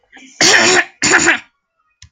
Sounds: Throat clearing